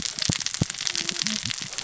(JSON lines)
{"label": "biophony, cascading saw", "recorder": "SoundTrap 600 or HydroMoth"}